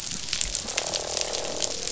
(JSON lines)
{"label": "biophony, croak", "recorder": "SoundTrap 500"}